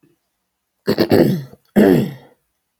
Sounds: Throat clearing